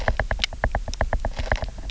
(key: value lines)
label: biophony, knock
recorder: SoundTrap 300